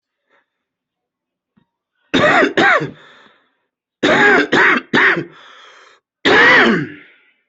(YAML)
expert_labels:
- quality: ok
  cough_type: dry
  dyspnea: false
  wheezing: false
  stridor: false
  choking: false
  congestion: false
  nothing: true
  diagnosis: COVID-19
  severity: mild
age: 28
gender: male
respiratory_condition: true
fever_muscle_pain: false
status: COVID-19